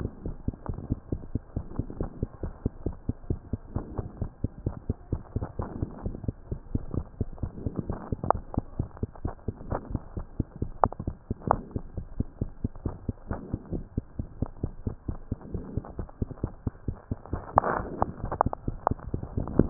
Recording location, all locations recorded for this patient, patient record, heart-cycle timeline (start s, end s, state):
mitral valve (MV)
aortic valve (AV)+pulmonary valve (PV)+tricuspid valve (TV)+mitral valve (MV)
#Age: Child
#Sex: Female
#Height: 119.0 cm
#Weight: 23.6 kg
#Pregnancy status: False
#Murmur: Absent
#Murmur locations: nan
#Most audible location: nan
#Systolic murmur timing: nan
#Systolic murmur shape: nan
#Systolic murmur grading: nan
#Systolic murmur pitch: nan
#Systolic murmur quality: nan
#Diastolic murmur timing: nan
#Diastolic murmur shape: nan
#Diastolic murmur grading: nan
#Diastolic murmur pitch: nan
#Diastolic murmur quality: nan
#Outcome: Normal
#Campaign: 2015 screening campaign
0.00	10.50	unannotated
10.50	10.61	systole
10.61	10.68	S2
10.68	10.83	diastole
10.83	10.90	S1
10.90	11.07	systole
11.07	11.13	S2
11.13	11.28	diastole
11.28	11.36	S1
11.36	11.52	systole
11.52	11.60	S2
11.60	11.74	diastole
11.74	11.84	S1
11.84	11.96	systole
11.96	12.06	S2
12.06	12.18	diastole
12.18	12.28	S1
12.28	12.40	systole
12.40	12.47	S2
12.47	12.62	diastole
12.62	12.72	S1
12.72	12.84	systole
12.84	12.96	S2
12.96	13.07	diastole
13.07	13.14	S1
13.14	13.29	systole
13.29	13.38	S2
13.38	13.51	diastole
13.51	13.60	S1
13.60	13.72	systole
13.72	13.84	S2
13.84	13.95	diastole
13.95	14.04	S1
14.04	14.18	systole
14.18	14.26	S2
14.26	14.40	diastole
14.40	14.50	S1
14.50	14.62	systole
14.62	14.72	S2
14.72	14.86	diastole
14.86	14.96	S1
14.96	15.08	systole
15.08	15.18	S2
15.18	15.31	diastole
15.31	15.38	S1
15.38	15.54	systole
15.54	15.64	S2
15.64	15.78	diastole
15.78	15.83	S1
15.83	15.98	systole
15.98	16.06	S2
16.06	16.21	diastole
16.21	16.27	S1
16.27	16.42	systole
16.42	16.48	S2
16.48	16.64	diastole
16.64	16.72	S1
16.72	16.86	systole
16.86	16.96	S2
16.96	17.09	diastole
17.09	17.18	S1
17.18	17.32	systole
17.32	19.70	unannotated